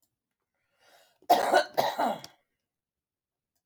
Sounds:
Cough